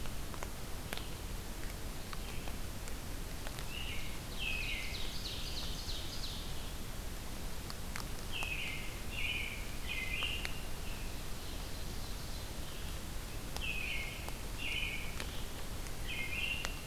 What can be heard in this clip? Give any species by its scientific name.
Vireo olivaceus, Turdus migratorius, Seiurus aurocapilla